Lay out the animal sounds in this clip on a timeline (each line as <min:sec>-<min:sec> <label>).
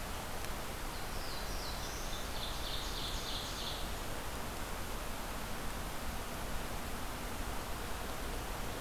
0:00.8-0:02.2 Black-throated Blue Warbler (Setophaga caerulescens)
0:02.1-0:03.9 Ovenbird (Seiurus aurocapilla)